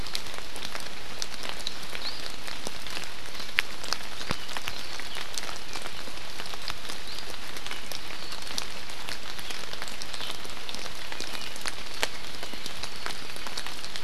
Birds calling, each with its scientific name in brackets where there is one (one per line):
Apapane (Himatione sanguinea)